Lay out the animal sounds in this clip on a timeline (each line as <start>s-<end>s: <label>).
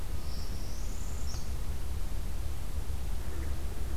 0.0s-1.7s: Northern Parula (Setophaga americana)